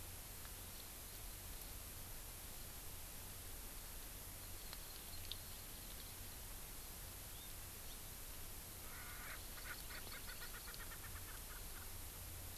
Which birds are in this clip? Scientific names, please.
Chlorodrepanis virens, Pternistis erckelii